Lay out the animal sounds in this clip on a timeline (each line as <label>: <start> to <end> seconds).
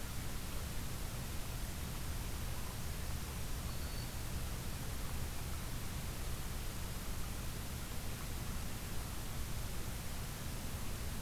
Black-throated Green Warbler (Setophaga virens): 3.3 to 4.3 seconds